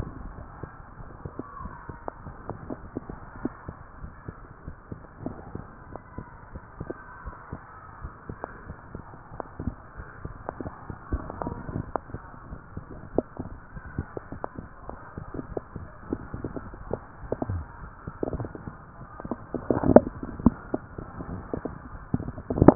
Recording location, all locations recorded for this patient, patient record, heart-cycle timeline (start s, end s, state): tricuspid valve (TV)
aortic valve (AV)+pulmonary valve (PV)+tricuspid valve (TV)
#Age: Child
#Sex: Male
#Height: 138.0 cm
#Weight: 44.8 kg
#Pregnancy status: False
#Murmur: Absent
#Murmur locations: nan
#Most audible location: nan
#Systolic murmur timing: nan
#Systolic murmur shape: nan
#Systolic murmur grading: nan
#Systolic murmur pitch: nan
#Systolic murmur quality: nan
#Diastolic murmur timing: nan
#Diastolic murmur shape: nan
#Diastolic murmur grading: nan
#Diastolic murmur pitch: nan
#Diastolic murmur quality: nan
#Outcome: Normal
#Campaign: 2015 screening campaign
0.00	3.75	unannotated
3.75	4.02	diastole
4.02	4.12	S1
4.12	4.23	systole
4.23	4.36	S2
4.36	4.62	diastole
4.62	4.76	S1
4.76	4.88	systole
4.88	4.98	S2
4.98	5.23	diastole
5.23	5.38	S1
5.38	5.52	systole
5.52	5.66	S2
5.66	5.87	diastole
5.87	5.99	S1
5.99	6.13	systole
6.13	6.25	S2
6.25	6.52	diastole
6.52	6.64	S1
6.64	6.77	systole
6.77	6.90	S2
6.90	7.22	diastole
7.22	7.32	S1
7.32	7.49	systole
7.49	7.59	S2
7.59	7.98	diastole
7.98	8.10	S1
8.10	8.23	systole
8.23	8.38	S2
8.38	8.65	diastole
8.65	8.77	S1
8.77	8.89	systole
8.89	9.03	S2
9.03	9.29	diastole
9.29	9.43	S1
9.43	9.58	systole
9.58	9.76	S2
9.76	9.98	diastole
9.98	10.08	S1
10.08	10.22	systole
10.22	10.31	S2
10.31	10.49	diastole
10.49	22.75	unannotated